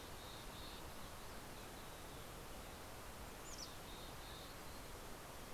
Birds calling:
Mountain Chickadee (Poecile gambeli)

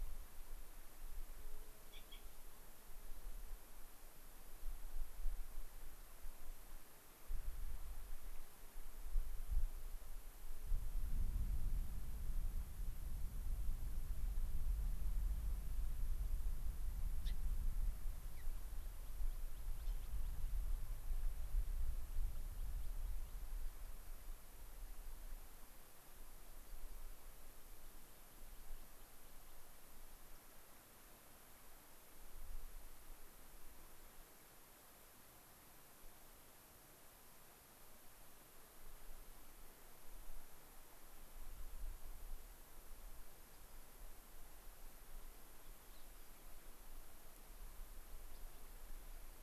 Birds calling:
Gray-crowned Rosy-Finch (Leucosticte tephrocotis), Rock Wren (Salpinctes obsoletus), American Pipit (Anthus rubescens)

